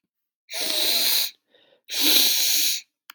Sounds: Sniff